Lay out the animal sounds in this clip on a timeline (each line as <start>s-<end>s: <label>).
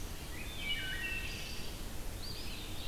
0.1s-1.7s: Wood Thrush (Hylocichla mustelina)
2.0s-2.9s: Eastern Wood-Pewee (Contopus virens)